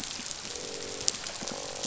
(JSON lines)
{"label": "biophony", "recorder": "SoundTrap 500"}
{"label": "biophony, croak", "recorder": "SoundTrap 500"}